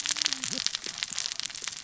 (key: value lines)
label: biophony, cascading saw
recorder: SoundTrap 600 or HydroMoth